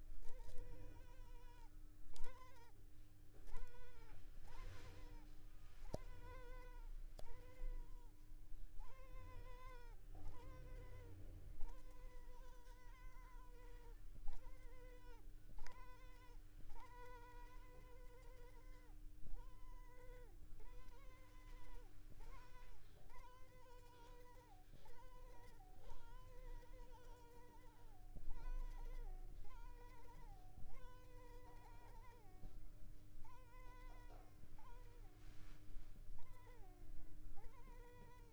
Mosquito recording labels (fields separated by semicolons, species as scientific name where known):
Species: Culex pipiens complex; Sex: female; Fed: unfed; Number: one; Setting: cup